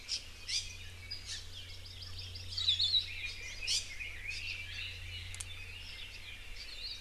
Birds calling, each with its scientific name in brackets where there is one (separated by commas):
Red-billed Leiothrix (Leiothrix lutea), Hawaii Amakihi (Chlorodrepanis virens), Hawaii Akepa (Loxops coccineus), Hawaii Creeper (Loxops mana), Iiwi (Drepanis coccinea)